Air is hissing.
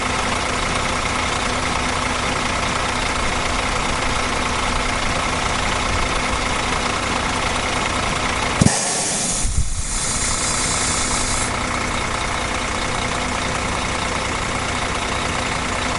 8.5 11.9

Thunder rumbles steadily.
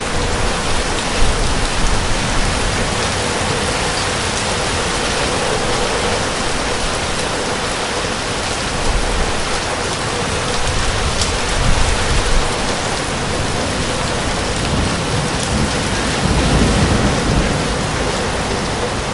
14.8 17.6

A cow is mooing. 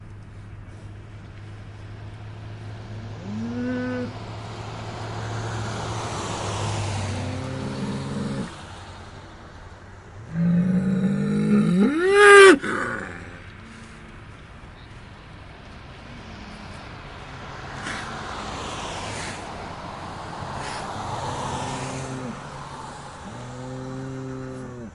3.2 4.2, 7.0 8.5, 10.3 13.4

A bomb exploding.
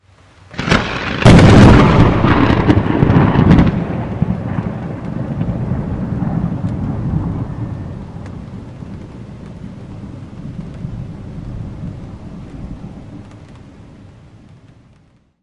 0.4 4.0

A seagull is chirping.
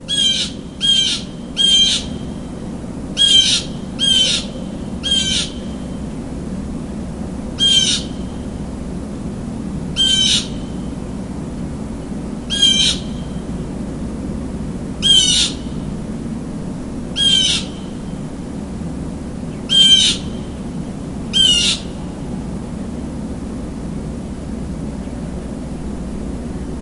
0.0 2.1, 3.0 5.6, 7.6 8.1, 9.9 10.5, 12.5 13.0, 15.0 15.7, 17.2 17.8, 19.7 20.3, 21.3 21.8, 26.8 26.8

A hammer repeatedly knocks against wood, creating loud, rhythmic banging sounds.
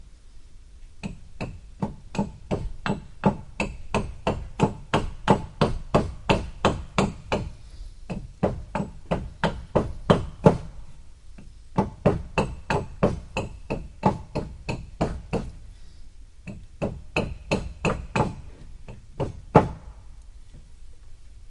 1.0 10.7, 11.8 15.6, 16.4 19.8

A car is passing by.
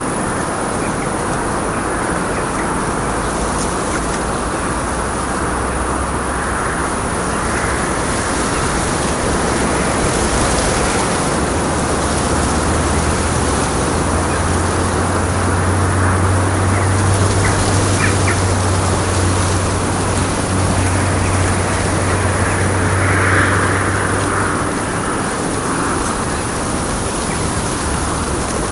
12.8 23.4

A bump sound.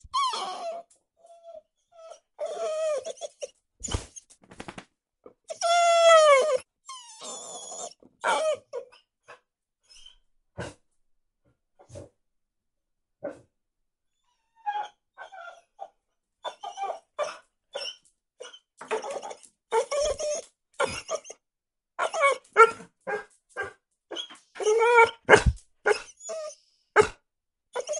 10.5 10.7, 11.8 12.1, 13.1 13.4

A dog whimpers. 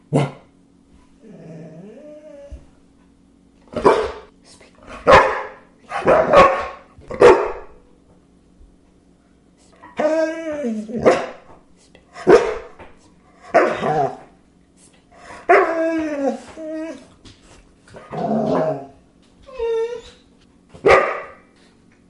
19.4 20.4

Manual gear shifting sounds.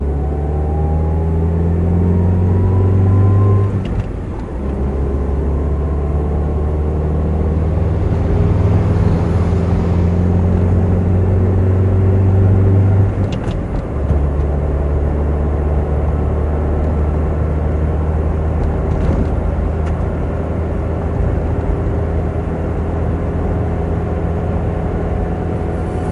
3.9 4.7, 13.4 14.3

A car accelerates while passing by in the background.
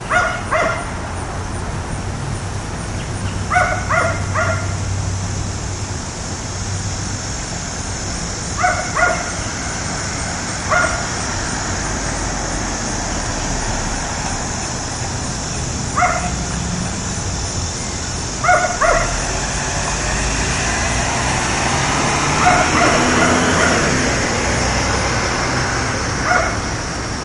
21.7 26.1

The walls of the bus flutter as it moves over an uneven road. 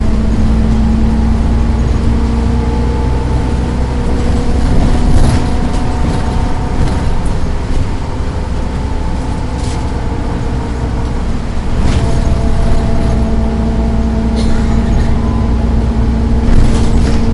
4.2 7.1, 9.5 10.1, 11.5 13.4, 16.4 17.3

